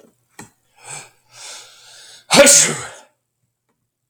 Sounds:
Sneeze